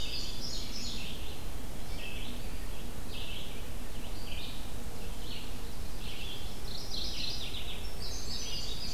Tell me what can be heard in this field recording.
Indigo Bunting, Red-eyed Vireo, Mourning Warbler